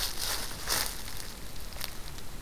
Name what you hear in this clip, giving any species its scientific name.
Troglodytes hiemalis